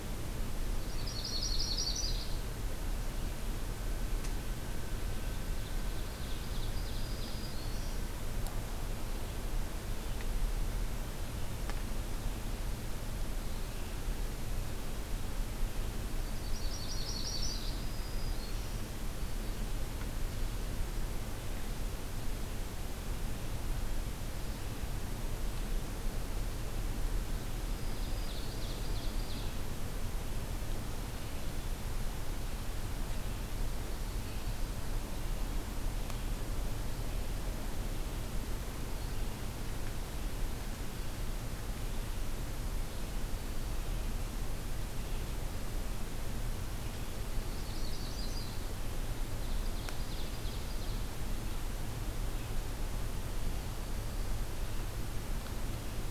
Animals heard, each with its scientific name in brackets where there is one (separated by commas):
Ovenbird (Seiurus aurocapilla), Yellow-rumped Warbler (Setophaga coronata), Black-throated Green Warbler (Setophaga virens)